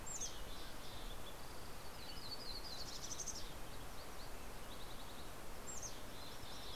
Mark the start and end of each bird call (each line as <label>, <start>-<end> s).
Mountain Chickadee (Poecile gambeli), 0.0-1.6 s
Mountain Quail (Oreortyx pictus), 0.3-1.2 s
Yellow-rumped Warbler (Setophaga coronata), 1.4-4.2 s
Green-tailed Towhee (Pipilo chlorurus), 4.2-6.8 s
Mountain Chickadee (Poecile gambeli), 4.8-6.8 s